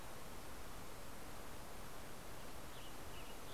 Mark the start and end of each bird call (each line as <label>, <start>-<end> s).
Western Tanager (Piranga ludoviciana), 1.5-3.5 s